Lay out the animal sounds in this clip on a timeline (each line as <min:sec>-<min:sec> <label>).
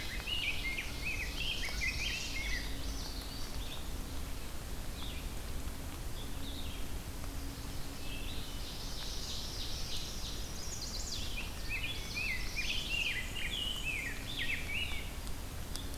0:00.0-0:01.6 Ovenbird (Seiurus aurocapilla)
0:00.0-0:02.9 Rose-breasted Grosbeak (Pheucticus ludovicianus)
0:00.0-0:08.5 Red-eyed Vireo (Vireo olivaceus)
0:01.4-0:02.5 Chestnut-sided Warbler (Setophaga pensylvanica)
0:02.2-0:03.6 Common Yellowthroat (Geothlypis trichas)
0:07.9-0:09.1 Hermit Thrush (Catharus guttatus)
0:08.5-0:09.5 Chestnut-sided Warbler (Setophaga pensylvanica)
0:08.6-0:10.4 Ovenbird (Seiurus aurocapilla)
0:10.0-0:11.3 Chestnut-sided Warbler (Setophaga pensylvanica)
0:11.2-0:15.2 Rose-breasted Grosbeak (Pheucticus ludovicianus)
0:11.4-0:12.2 Hermit Thrush (Catharus guttatus)
0:11.5-0:12.8 Common Yellowthroat (Geothlypis trichas)
0:11.9-0:13.4 Chestnut-sided Warbler (Setophaga pensylvanica)
0:12.8-0:14.2 Black-and-white Warbler (Mniotilta varia)